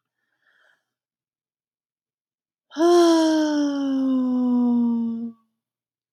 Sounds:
Sigh